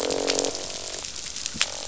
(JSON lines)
{"label": "biophony, croak", "recorder": "SoundTrap 500"}